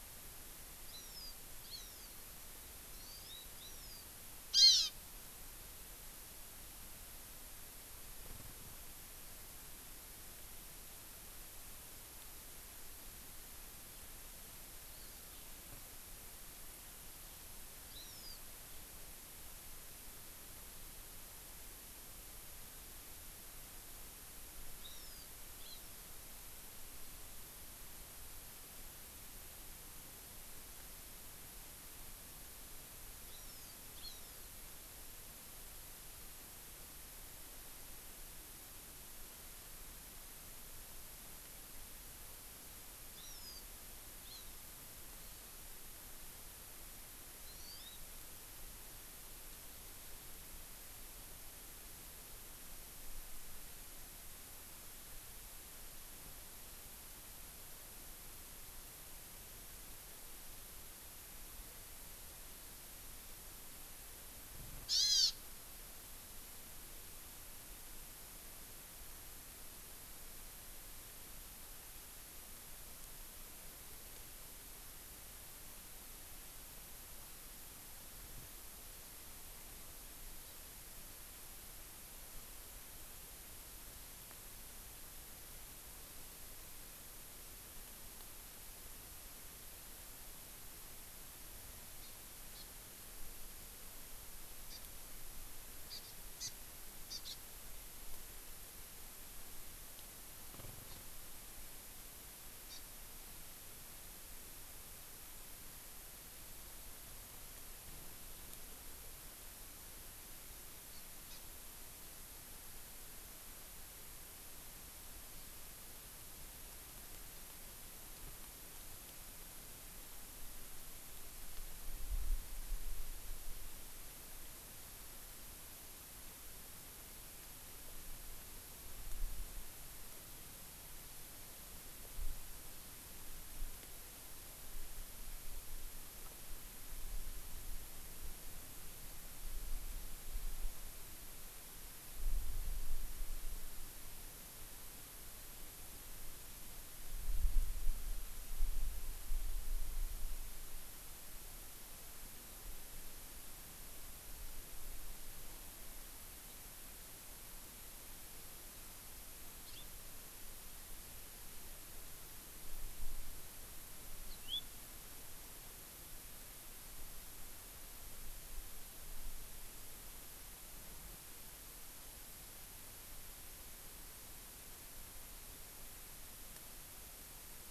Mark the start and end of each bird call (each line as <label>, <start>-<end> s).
Hawaii Amakihi (Chlorodrepanis virens), 0.9-1.4 s
Hawaii Amakihi (Chlorodrepanis virens), 1.7-2.3 s
Hawaii Amakihi (Chlorodrepanis virens), 2.9-4.1 s
Hawaii Amakihi (Chlorodrepanis virens), 4.5-4.9 s
Hawaii Amakihi (Chlorodrepanis virens), 14.9-15.3 s
Hawaii Amakihi (Chlorodrepanis virens), 17.9-18.5 s
Hawaii Amakihi (Chlorodrepanis virens), 24.8-25.3 s
Hawaii Amakihi (Chlorodrepanis virens), 25.7-25.9 s
Hawaii Amakihi (Chlorodrepanis virens), 33.3-34.6 s
Hawaii Amakihi (Chlorodrepanis virens), 43.2-43.7 s
Hawaii Amakihi (Chlorodrepanis virens), 44.3-44.6 s
Hawaii Amakihi (Chlorodrepanis virens), 47.5-48.1 s
Hawaii Amakihi (Chlorodrepanis virens), 64.9-65.4 s
Hawaii Amakihi (Chlorodrepanis virens), 92.0-92.2 s
Hawaii Amakihi (Chlorodrepanis virens), 92.6-92.7 s
Hawaii Amakihi (Chlorodrepanis virens), 94.7-94.9 s
Hawaii Amakihi (Chlorodrepanis virens), 95.9-96.6 s
Hawaii Amakihi (Chlorodrepanis virens), 97.1-97.4 s
Hawaii Amakihi (Chlorodrepanis virens), 100.9-101.0 s
Hawaii Amakihi (Chlorodrepanis virens), 102.7-102.8 s
Hawaii Amakihi (Chlorodrepanis virens), 110.9-111.4 s
House Finch (Haemorhous mexicanus), 159.7-159.9 s
House Finch (Haemorhous mexicanus), 164.3-164.7 s